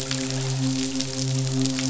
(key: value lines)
label: biophony, midshipman
recorder: SoundTrap 500